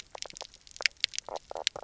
{"label": "biophony, knock croak", "recorder": "SoundTrap 300"}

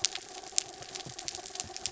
{"label": "anthrophony, mechanical", "recorder": "SoundTrap 300"}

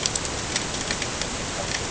{"label": "ambient", "recorder": "HydroMoth"}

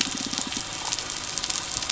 {"label": "biophony", "recorder": "SoundTrap 300"}
{"label": "anthrophony, boat engine", "recorder": "SoundTrap 300"}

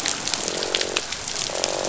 {"label": "biophony, croak", "recorder": "SoundTrap 500"}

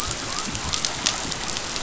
{"label": "biophony", "recorder": "SoundTrap 500"}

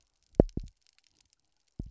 {"label": "biophony, double pulse", "recorder": "SoundTrap 300"}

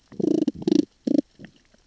{"label": "biophony, damselfish", "recorder": "SoundTrap 600 or HydroMoth"}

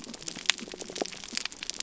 {"label": "biophony", "recorder": "SoundTrap 300"}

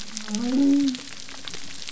{"label": "biophony", "recorder": "SoundTrap 300"}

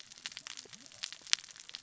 {"label": "biophony, cascading saw", "recorder": "SoundTrap 600 or HydroMoth"}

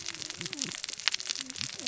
{"label": "biophony, cascading saw", "recorder": "SoundTrap 600 or HydroMoth"}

